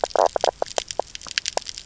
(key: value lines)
label: biophony, knock croak
recorder: SoundTrap 300